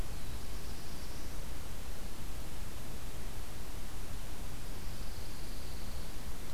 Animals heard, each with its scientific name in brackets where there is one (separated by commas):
Black-throated Blue Warbler (Setophaga caerulescens), Pine Warbler (Setophaga pinus)